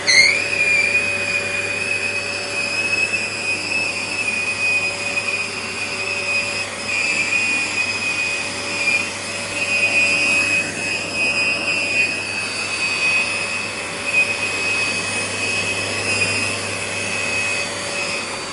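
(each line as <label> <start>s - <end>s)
A constant, high-pitched, loud vacuum cleaner. 0.0s - 18.5s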